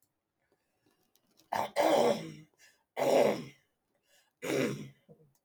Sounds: Throat clearing